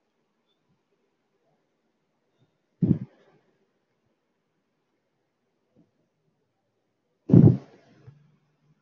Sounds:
Sigh